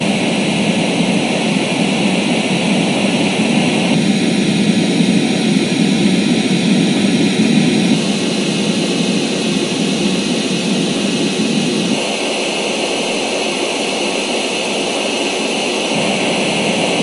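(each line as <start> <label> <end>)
0.0 A loud TV static noise with varying tones. 17.0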